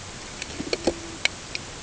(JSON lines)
{"label": "ambient", "recorder": "HydroMoth"}